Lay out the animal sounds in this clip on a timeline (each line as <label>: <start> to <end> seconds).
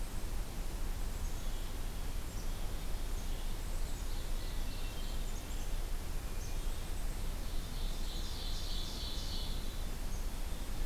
Black-capped Chickadee (Poecile atricapillus): 1.0 to 1.7 seconds
Black-capped Chickadee (Poecile atricapillus): 2.0 to 3.6 seconds
Ovenbird (Seiurus aurocapilla): 3.8 to 5.8 seconds
Black-capped Chickadee (Poecile atricapillus): 6.3 to 7.0 seconds
Ovenbird (Seiurus aurocapilla): 7.4 to 9.8 seconds